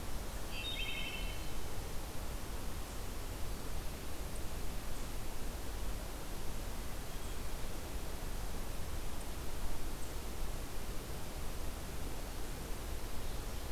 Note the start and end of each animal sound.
0.4s-1.4s: Wood Thrush (Hylocichla mustelina)

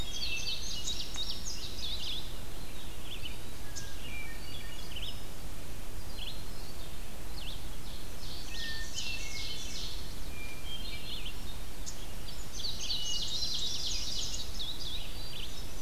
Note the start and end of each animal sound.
0.0s-0.8s: Hermit Thrush (Catharus guttatus)
0.0s-2.1s: Indigo Bunting (Passerina cyanea)
0.0s-15.8s: Red-eyed Vireo (Vireo olivaceus)
2.5s-3.7s: Eastern Wood-Pewee (Contopus virens)
3.7s-5.4s: Hermit Thrush (Catharus guttatus)
6.0s-7.1s: Hermit Thrush (Catharus guttatus)
7.9s-10.3s: Ovenbird (Seiurus aurocapilla)
8.4s-11.8s: Hermit Thrush (Catharus guttatus)
12.2s-14.7s: Indigo Bunting (Passerina cyanea)
14.8s-15.8s: Hermit Thrush (Catharus guttatus)

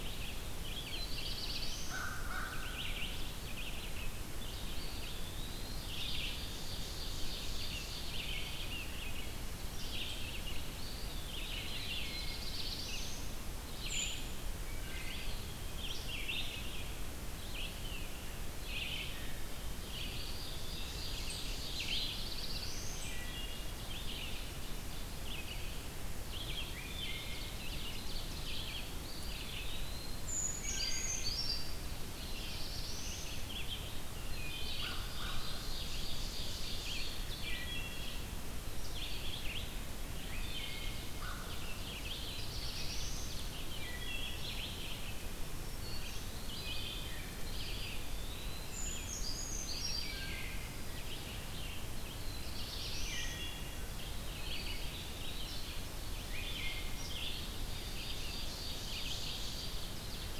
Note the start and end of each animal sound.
0.0s-49.3s: Red-eyed Vireo (Vireo olivaceus)
0.6s-2.2s: Black-throated Blue Warbler (Setophaga caerulescens)
1.7s-2.8s: American Crow (Corvus brachyrhynchos)
4.6s-5.8s: Eastern Wood-Pewee (Contopus virens)
6.0s-8.2s: Ovenbird (Seiurus aurocapilla)
10.7s-12.0s: Eastern Wood-Pewee (Contopus virens)
11.8s-12.5s: Wood Thrush (Hylocichla mustelina)
11.9s-13.4s: Black-throated Blue Warbler (Setophaga caerulescens)
13.8s-14.4s: unidentified call
14.6s-15.2s: Wood Thrush (Hylocichla mustelina)
14.9s-15.8s: Eastern Wood-Pewee (Contopus virens)
19.9s-22.4s: Ovenbird (Seiurus aurocapilla)
20.1s-21.1s: Eastern Wood-Pewee (Contopus virens)
21.7s-23.2s: Black-throated Blue Warbler (Setophaga caerulescens)
22.9s-23.9s: Wood Thrush (Hylocichla mustelina)
23.5s-25.2s: Ovenbird (Seiurus aurocapilla)
26.6s-27.7s: Wood Thrush (Hylocichla mustelina)
27.0s-28.7s: Ovenbird (Seiurus aurocapilla)
28.8s-30.4s: Eastern Wood-Pewee (Contopus virens)
30.0s-31.9s: Brown Creeper (Certhia americana)
30.5s-31.6s: Wood Thrush (Hylocichla mustelina)
31.7s-33.4s: Ovenbird (Seiurus aurocapilla)
32.1s-33.4s: Black-throated Blue Warbler (Setophaga caerulescens)
34.1s-34.7s: Wood Thrush (Hylocichla mustelina)
34.6s-35.5s: American Crow (Corvus brachyrhynchos)
34.9s-37.2s: Ovenbird (Seiurus aurocapilla)
37.3s-38.0s: Wood Thrush (Hylocichla mustelina)
38.6s-39.2s: Eastern Wood-Pewee (Contopus virens)
40.2s-41.1s: Wood Thrush (Hylocichla mustelina)
40.5s-42.2s: Ovenbird (Seiurus aurocapilla)
41.2s-41.6s: American Crow (Corvus brachyrhynchos)
42.3s-43.3s: Black-throated Blue Warbler (Setophaga caerulescens)
43.7s-44.5s: Wood Thrush (Hylocichla mustelina)
45.0s-46.3s: Black-throated Green Warbler (Setophaga virens)
46.2s-46.8s: Eastern Wood-Pewee (Contopus virens)
46.6s-47.4s: Wood Thrush (Hylocichla mustelina)
47.5s-48.8s: Eastern Wood-Pewee (Contopus virens)
48.4s-50.3s: Brown Creeper (Certhia americana)
49.6s-60.4s: Red-eyed Vireo (Vireo olivaceus)
50.0s-50.8s: Wood Thrush (Hylocichla mustelina)
52.0s-53.4s: Black-throated Blue Warbler (Setophaga caerulescens)
53.0s-53.8s: Wood Thrush (Hylocichla mustelina)
53.9s-55.9s: Eastern Wood-Pewee (Contopus virens)
56.3s-57.1s: Wood Thrush (Hylocichla mustelina)
57.7s-59.9s: Ovenbird (Seiurus aurocapilla)

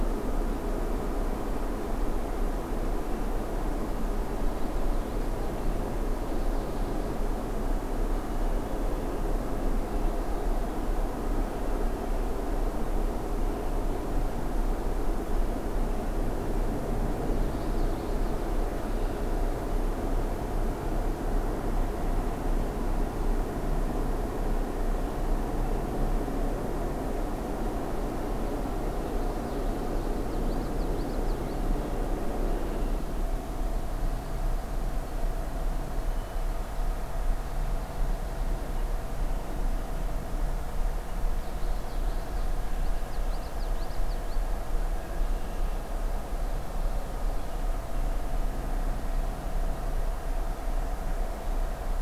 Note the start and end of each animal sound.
4.4s-5.8s: Common Yellowthroat (Geothlypis trichas)
17.2s-18.5s: Common Yellowthroat (Geothlypis trichas)
18.6s-19.3s: Red-winged Blackbird (Agelaius phoeniceus)
29.0s-31.7s: Common Yellowthroat (Geothlypis trichas)
41.3s-44.5s: Common Yellowthroat (Geothlypis trichas)

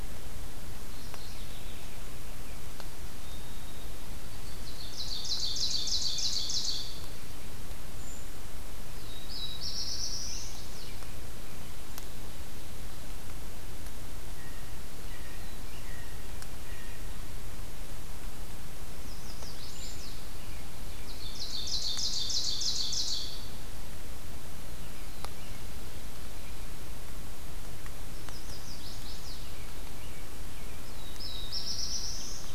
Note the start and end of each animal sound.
0.8s-1.9s: Mourning Warbler (Geothlypis philadelphia)
3.2s-5.2s: White-throated Sparrow (Zonotrichia albicollis)
4.4s-7.3s: Ovenbird (Seiurus aurocapilla)
7.9s-8.3s: Brown Creeper (Certhia americana)
8.8s-10.7s: Black-throated Blue Warbler (Setophaga caerulescens)
10.1s-11.1s: Chestnut-sided Warbler (Setophaga pensylvanica)
14.2s-17.1s: Blue Jay (Cyanocitta cristata)
18.9s-20.2s: Chestnut-sided Warbler (Setophaga pensylvanica)
19.7s-20.1s: Brown Creeper (Certhia americana)
20.8s-23.6s: Ovenbird (Seiurus aurocapilla)
28.1s-29.5s: Chestnut-sided Warbler (Setophaga pensylvanica)
29.4s-30.9s: American Robin (Turdus migratorius)
30.9s-32.5s: Black-throated Blue Warbler (Setophaga caerulescens)

